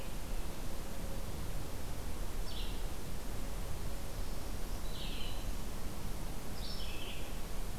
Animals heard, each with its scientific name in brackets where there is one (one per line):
Black-throated Green Warbler (Setophaga virens)
Red-eyed Vireo (Vireo olivaceus)